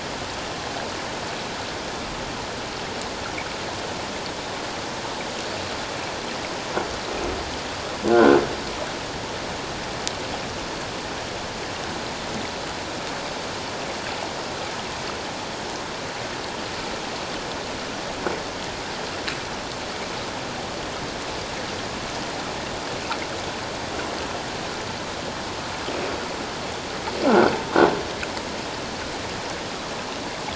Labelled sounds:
8.1	8.4	croaking sound likely from a nearby submerged object, 1.3 to 1.7 kHz
27.3	27.5	croaking sound likely from a nearby submerged object, 1.3 to 1.6 kHz

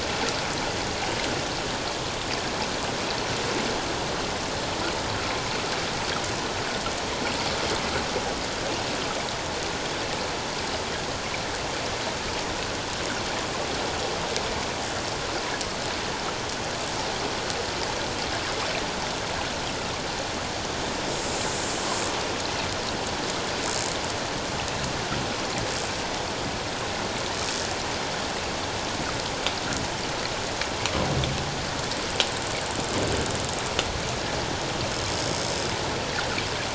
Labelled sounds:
21.2	21.5	killer whale, 7.2 to 7.4 kHz

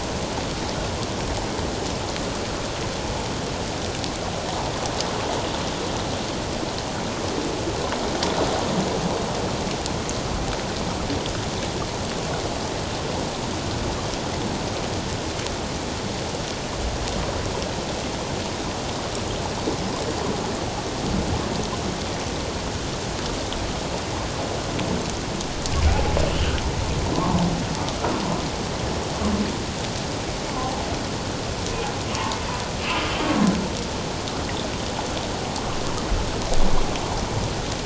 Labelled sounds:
25.9	26.2	humpback whale, 0.78 to 0.91 kHz
27.1	27.4	humpback whale, 0.81 to 1.2 kHz
32.9	33.1	humpback whale, 1.2 to 1.4 kHz

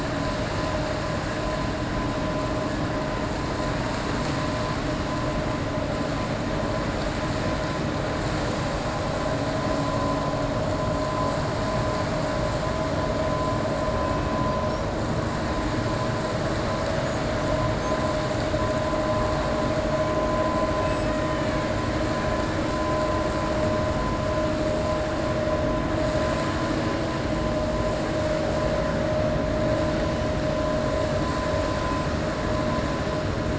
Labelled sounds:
20.8	21.7	killer whale, 1.7 to 3.5 kHz

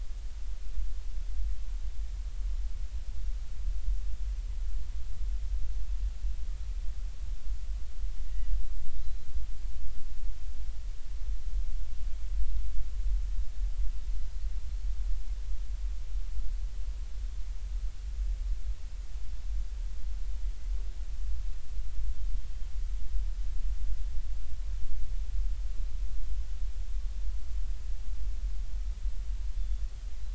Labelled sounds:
8.2	8.5	Pacific white-sided dolphin, 1.9 to 2.1 kHz
29.6	29.8	Pacific white-sided dolphin, 3.4 to 3.6 kHz

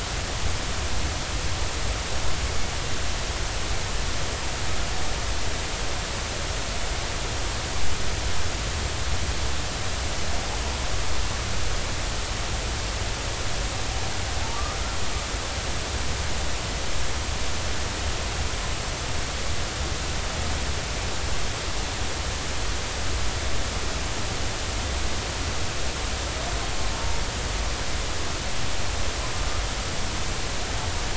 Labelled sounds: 26.9	27.2	humpback whale, 0.86 to 1.1 kHz

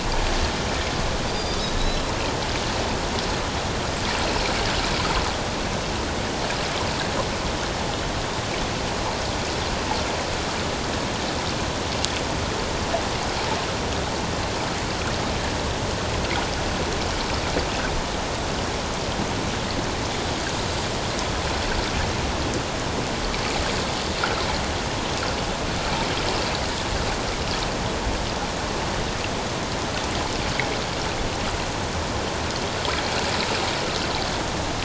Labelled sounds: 1.7	2.0	Pacific white-sided dolphin, 3.8 to 4.1 kHz

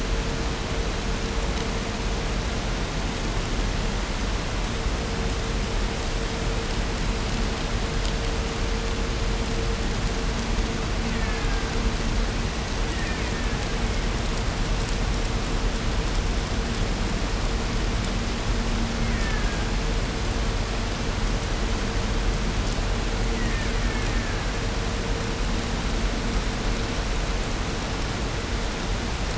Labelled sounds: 10.7	12.3	killer whale, Bigg's (transient), 0.51 to 3.1 kHz
12.8	14.3	killer whale, Bigg's (transient), 0.76 to 3.5 kHz
18.9	19.8	killer whale, Bigg's (transient), 0.62 to 2.9 kHz
23.2	24.7	killer whale, Bigg's (transient), 0.88 to 3.2 kHz

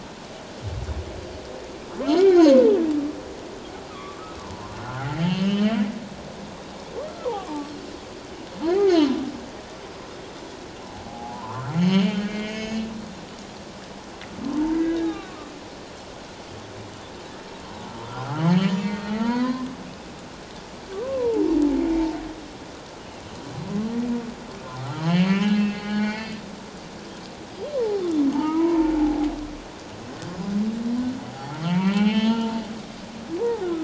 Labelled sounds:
2.2	2.8	humpback whale, 0.78 to 2.4 kHz
3.9	5.7	humpback whale, 0.84 to 3.2 kHz
7.2	7.7	humpback whale, 0.78 to 1.3 kHz
11.1	12.9	humpback whale, 0.78 to 6.8 kHz
14.7	15.5	humpback whale, 1.1 to 2.1 kHz
18.0	19.7	humpback whale, 0.91 to 7.0 kHz
21.0	21.6	humpback whale, 0.78 to 1.1 kHz
25.0	26.4	humpback whale, 0.81 to 4.9 kHz
27.7	29.3	humpback whale, 0.78 to 2.3 kHz
31.3	32.6	humpback whale, 0.78 to 4.2 kHz
33.4	33.7	humpback whale, 0.78 to 1.0 kHz

